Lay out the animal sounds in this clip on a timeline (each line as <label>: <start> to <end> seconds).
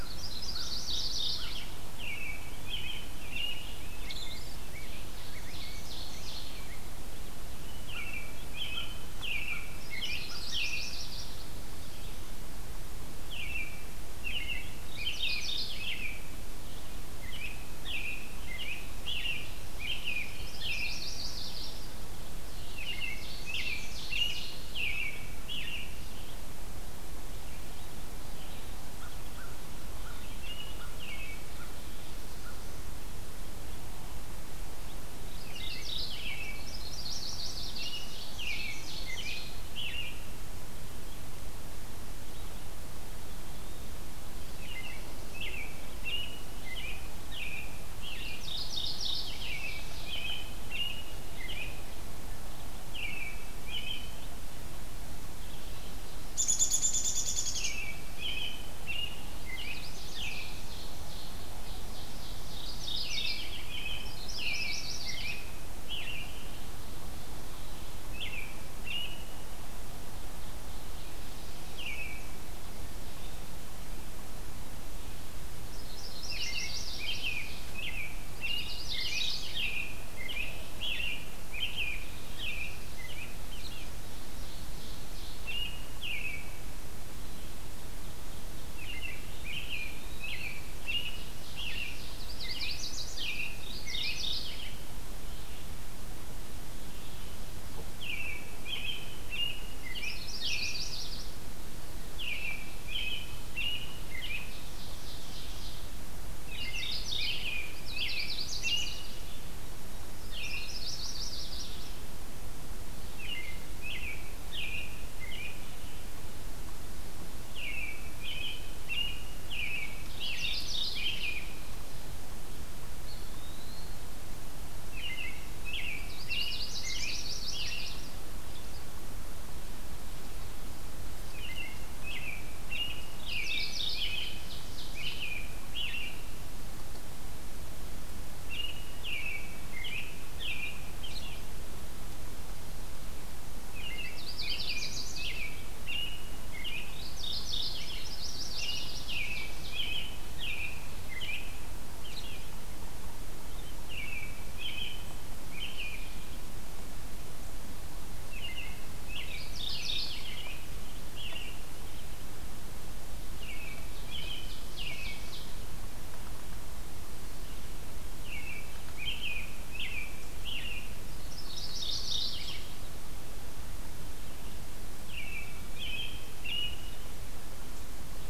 Yellow-rumped Warbler (Setophaga coronata): 0.0 to 1.6 seconds
American Robin (Turdus migratorius): 2.0 to 4.6 seconds
Ovenbird (Seiurus aurocapilla): 4.4 to 6.6 seconds
American Robin (Turdus migratorius): 7.7 to 10.9 seconds
Yellow-rumped Warbler (Setophaga coronata): 9.7 to 11.5 seconds
Red-eyed Vireo (Vireo olivaceus): 11.8 to 56.0 seconds
American Robin (Turdus migratorius): 13.2 to 16.2 seconds
Mourning Warbler (Geothlypis philadelphia): 14.7 to 16.1 seconds
American Robin (Turdus migratorius): 17.2 to 21.1 seconds
Yellow-rumped Warbler (Setophaga coronata): 20.2 to 21.8 seconds
Ovenbird (Seiurus aurocapilla): 22.0 to 24.9 seconds
American Robin (Turdus migratorius): 22.6 to 25.9 seconds
American Crow (Corvus brachyrhynchos): 28.9 to 32.7 seconds
American Robin (Turdus migratorius): 30.2 to 31.4 seconds
Mourning Warbler (Geothlypis philadelphia): 35.1 to 36.5 seconds
American Robin (Turdus migratorius): 35.2 to 36.7 seconds
Yellow-rumped Warbler (Setophaga coronata): 36.4 to 37.9 seconds
Ovenbird (Seiurus aurocapilla): 37.3 to 39.7 seconds
American Robin (Turdus migratorius): 37.4 to 40.5 seconds
Eastern Wood-Pewee (Contopus virens): 43.0 to 43.9 seconds
American Robin (Turdus migratorius): 44.7 to 48.6 seconds
Mourning Warbler (Geothlypis philadelphia): 48.0 to 49.4 seconds
Ovenbird (Seiurus aurocapilla): 48.2 to 50.3 seconds
American Robin (Turdus migratorius): 49.2 to 51.9 seconds
American Robin (Turdus migratorius): 52.7 to 54.3 seconds
Downy Woodpecker (Dryobates pubescens): 56.0 to 57.9 seconds
American Robin (Turdus migratorius): 57.4 to 60.6 seconds
Yellow-rumped Warbler (Setophaga coronata): 59.3 to 60.5 seconds
Ovenbird (Seiurus aurocapilla): 60.5 to 63.2 seconds
Mourning Warbler (Geothlypis philadelphia): 62.5 to 63.7 seconds
American Robin (Turdus migratorius): 63.2 to 66.5 seconds
Yellow-rumped Warbler (Setophaga coronata): 64.0 to 65.5 seconds
Red-eyed Vireo (Vireo olivaceus): 67.4 to 116.0 seconds
American Robin (Turdus migratorius): 67.9 to 69.4 seconds
American Robin (Turdus migratorius): 71.5 to 72.4 seconds
Yellow-rumped Warbler (Setophaga coronata): 75.3 to 77.1 seconds
American Robin (Turdus migratorius): 76.2 to 83.9 seconds
Ovenbird (Seiurus aurocapilla): 76.4 to 77.8 seconds
Mourning Warbler (Geothlypis philadelphia): 78.1 to 79.6 seconds
Ovenbird (Seiurus aurocapilla): 83.8 to 85.6 seconds
American Robin (Turdus migratorius): 85.3 to 86.7 seconds
American Robin (Turdus migratorius): 88.7 to 94.2 seconds
Ovenbird (Seiurus aurocapilla): 90.8 to 92.4 seconds
Yellow-rumped Warbler (Setophaga coronata): 91.9 to 93.4 seconds
Mourning Warbler (Geothlypis philadelphia): 93.5 to 94.8 seconds
American Robin (Turdus migratorius): 97.9 to 100.7 seconds
Yellow-rumped Warbler (Setophaga coronata): 99.7 to 101.5 seconds
American Robin (Turdus migratorius): 102.0 to 104.7 seconds
Ovenbird (Seiurus aurocapilla): 103.9 to 105.9 seconds
American Robin (Turdus migratorius): 106.2 to 109.2 seconds
Mourning Warbler (Geothlypis philadelphia): 106.4 to 107.5 seconds
Yellow-rumped Warbler (Setophaga coronata): 107.6 to 109.2 seconds
American Robin (Turdus migratorius): 110.1 to 111.1 seconds
Yellow-rumped Warbler (Setophaga coronata): 110.3 to 111.9 seconds
American Robin (Turdus migratorius): 113.1 to 115.8 seconds
American Robin (Turdus migratorius): 117.4 to 121.7 seconds
Mourning Warbler (Geothlypis philadelphia): 120.1 to 121.2 seconds
Eastern Wood-Pewee (Contopus virens): 122.8 to 124.1 seconds
American Robin (Turdus migratorius): 124.8 to 127.9 seconds
Yellow-rumped Warbler (Setophaga coronata): 125.9 to 128.1 seconds
American Robin (Turdus migratorius): 131.2 to 136.5 seconds
Mourning Warbler (Geothlypis philadelphia): 133.1 to 134.3 seconds
Ovenbird (Seiurus aurocapilla): 133.6 to 135.3 seconds
American Robin (Turdus migratorius): 138.3 to 141.5 seconds
American Robin (Turdus migratorius): 143.6 to 147.0 seconds
Yellow-rumped Warbler (Setophaga coronata): 143.8 to 145.4 seconds
Mourning Warbler (Geothlypis philadelphia): 146.7 to 147.8 seconds
Yellow-rumped Warbler (Setophaga coronata): 147.8 to 149.2 seconds
Ovenbird (Seiurus aurocapilla): 148.2 to 149.9 seconds
American Robin (Turdus migratorius): 148.5 to 152.6 seconds
American Robin (Turdus migratorius): 153.4 to 156.1 seconds
American Robin (Turdus migratorius): 158.3 to 161.8 seconds
Mourning Warbler (Geothlypis philadelphia): 159.1 to 160.5 seconds
American Robin (Turdus migratorius): 163.3 to 165.3 seconds
Ovenbird (Seiurus aurocapilla): 163.4 to 165.6 seconds
American Robin (Turdus migratorius): 168.0 to 170.9 seconds
Mourning Warbler (Geothlypis philadelphia): 171.1 to 172.8 seconds
American Robin (Turdus migratorius): 174.9 to 177.0 seconds